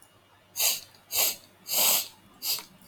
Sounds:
Sniff